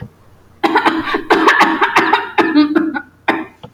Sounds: Cough